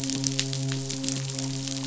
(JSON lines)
{"label": "biophony, midshipman", "recorder": "SoundTrap 500"}